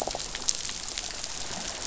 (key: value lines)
label: biophony
recorder: SoundTrap 500